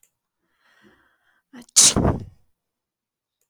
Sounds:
Sneeze